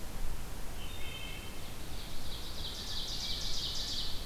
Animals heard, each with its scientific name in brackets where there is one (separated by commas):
Wood Thrush (Hylocichla mustelina), Ovenbird (Seiurus aurocapilla)